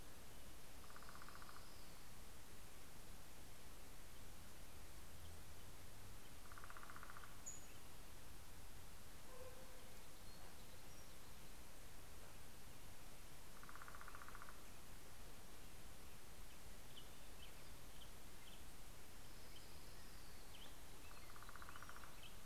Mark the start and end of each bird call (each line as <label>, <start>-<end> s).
Northern Flicker (Colaptes auratus), 0.5-2.1 s
Northern Flicker (Colaptes auratus), 6.0-7.8 s
Pacific-slope Flycatcher (Empidonax difficilis), 6.5-8.4 s
Black-headed Grosbeak (Pheucticus melanocephalus), 15.8-22.4 s
Orange-crowned Warbler (Leiothlypis celata), 18.6-21.1 s
Northern Flicker (Colaptes auratus), 21.0-22.4 s